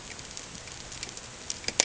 {"label": "ambient", "recorder": "HydroMoth"}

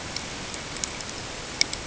{"label": "ambient", "recorder": "HydroMoth"}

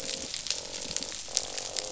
{"label": "biophony, croak", "recorder": "SoundTrap 500"}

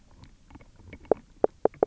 {"label": "biophony, knock croak", "recorder": "SoundTrap 300"}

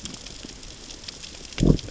{"label": "biophony, growl", "recorder": "SoundTrap 600 or HydroMoth"}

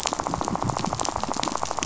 {"label": "biophony, rattle", "recorder": "SoundTrap 500"}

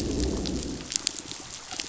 {"label": "biophony, growl", "recorder": "SoundTrap 500"}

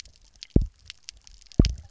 {"label": "biophony, double pulse", "recorder": "SoundTrap 300"}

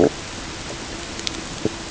{"label": "ambient", "recorder": "HydroMoth"}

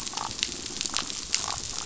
{"label": "biophony", "recorder": "SoundTrap 500"}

